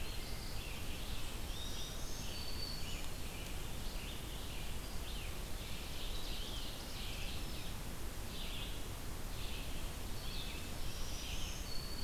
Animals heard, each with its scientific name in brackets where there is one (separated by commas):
Ovenbird (Seiurus aurocapilla), Black-throated Green Warbler (Setophaga virens), Red-eyed Vireo (Vireo olivaceus)